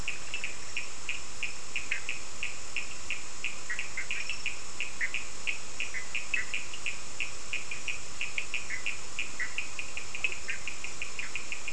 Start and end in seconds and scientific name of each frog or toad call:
0.0	0.6	Boana bischoffi
0.0	11.7	Sphaenorhynchus surdus
1.8	2.1	Boana bischoffi
3.6	4.3	Boana bischoffi
5.0	5.2	Boana bischoffi
5.9	6.5	Boana bischoffi
8.7	11.7	Boana bischoffi